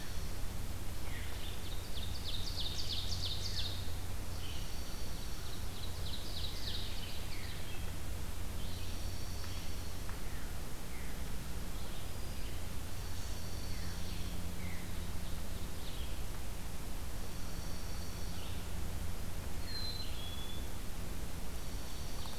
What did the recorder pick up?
Dark-eyed Junco, Red-eyed Vireo, Ovenbird, Black-capped Chickadee